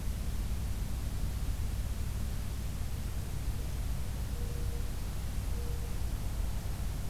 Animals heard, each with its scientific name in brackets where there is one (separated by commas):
Mourning Dove (Zenaida macroura)